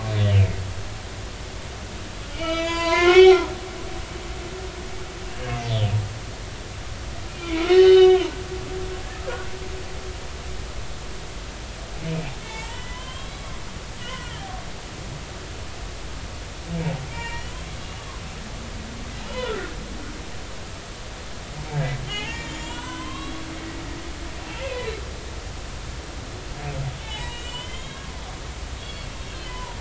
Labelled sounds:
0.2	0.6	humpback whale, 2.0 to 3.2 kHz
2.3	3.5	humpback whale, 0.86 to 7.1 kHz
5.6	5.9	humpback whale, 2.8 to 3.8 kHz
7.3	8.3	humpback whale, 0.93 to 3.8 kHz
12.4	13.4	humpback whale, 0.83 to 3.4 kHz
14.0	14.3	humpback whale, 1.4 to 3.2 kHz
17.1	17.5	humpback whale, 0.86 to 3.0 kHz
19.2	19.7	humpback whale, 1.3 to 3.6 kHz
22.1	23.4	humpback whale, 0.80 to 7.2 kHz
24.5	25.0	humpback whale, 1.9 to 4.1 kHz
27.0	28.1	humpback whale, 0.80 to 7.5 kHz
28.8	29.7	humpback whale, 0.90 to 4.5 kHz

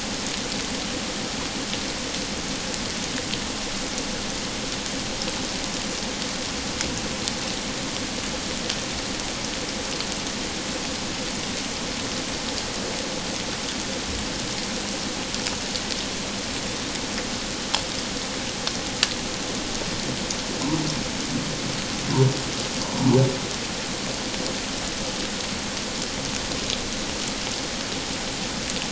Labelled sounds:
22.8	23.2	humpback whale, 0.84 to 1.1 kHz

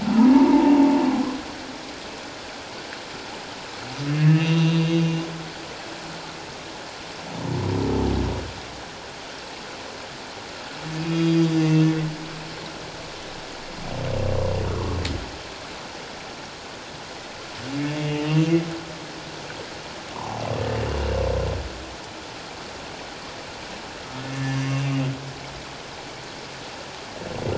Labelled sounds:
0.3	0.9	humpback whale, 0.81 to 1.0 kHz
4.2	5.0	humpback whale, 1.6 to 4.0 kHz
11.0	11.9	humpback whale, 2.4 to 5.0 kHz
14.7	15.0	humpback whale, 0.84 to 1.4 kHz
18.0	18.6	humpback whale, 2.6 to 2.9 kHz
20.1	20.4	humpback whale, 0.78 to 1.2 kHz
24.4	24.7	humpback whale, 2.75 to 2.84 kHz

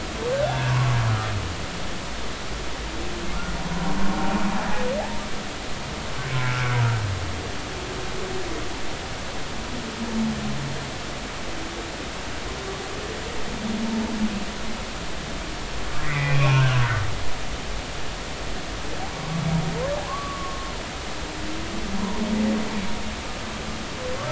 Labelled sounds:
0.3	1.0	humpback whale, 0.90 to 1.7 kHz
6.3	6.6	humpback whale, 1.3 to 1.4 kHz
16.0	16.8	humpback whale, 0.86 to 2.6 kHz
20.0	20.7	humpback whale, 0.93 to 1.3 kHz
22.0	22.3	humpback whale, 0.86 to 1.1 kHz

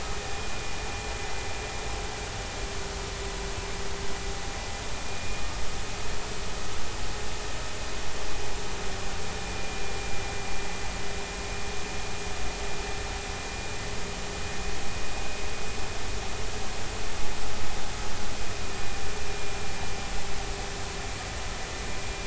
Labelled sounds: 5.1	5.5	vessel noise, 2.4 to 2.6 kHz
9.6	9.8	vessel noise, 2.37 to 2.43 kHz
19.3	19.5	vessel noise, 2.3 to 2.4 kHz

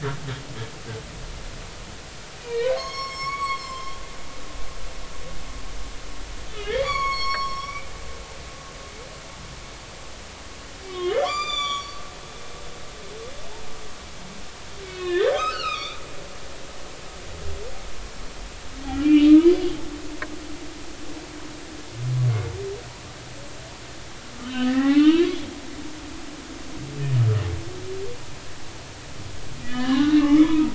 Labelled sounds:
2.4	4.0	humpback whale, 0.93 to 7.7 kHz
6.5	7.9	humpback whale, 0.99 to 6.9 kHz
10.9	12.0	humpback whale, 0.93 to 7.3 kHz
14.8	16.0	humpback whale, 1.1 to 4.1 kHz
18.8	19.3	humpback whale, 1.9 to 2.8 kHz
24.4	25.5	humpback whale, 0.80 to 3.5 kHz
29.6	30.7	humpback whale, 0.80 to 4.1 kHz

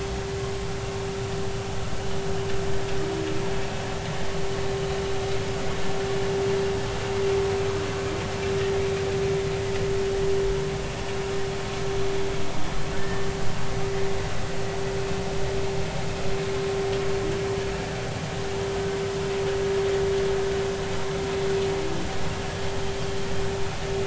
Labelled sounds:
13.0	13.3	humpback whale, 1.7 to 1.9 kHz

